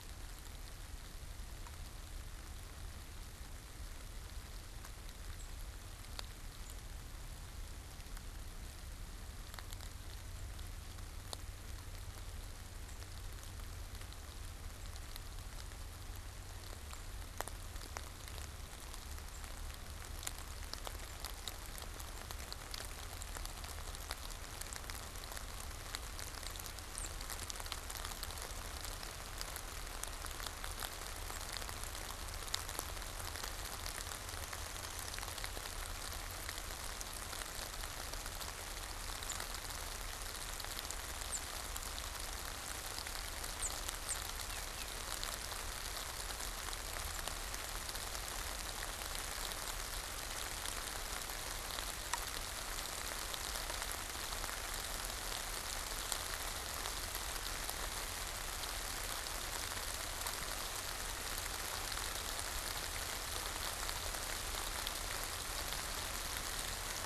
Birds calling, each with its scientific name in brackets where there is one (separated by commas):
Downy Woodpecker (Dryobates pubescens), unidentified bird